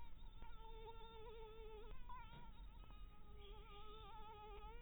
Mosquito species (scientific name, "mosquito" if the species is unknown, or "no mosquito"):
Anopheles dirus